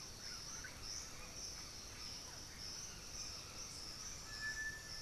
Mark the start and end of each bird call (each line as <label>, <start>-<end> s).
Russet-backed Oropendola (Psarocolius angustifrons), 0.0-5.0 s
Undulated Tinamou (Crypturellus undulatus), 2.4-4.7 s